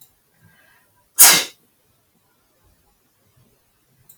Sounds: Sneeze